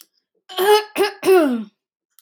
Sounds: Throat clearing